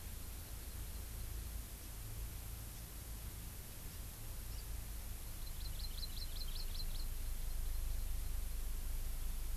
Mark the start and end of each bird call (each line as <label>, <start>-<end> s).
Hawaii Amakihi (Chlorodrepanis virens), 5.4-7.1 s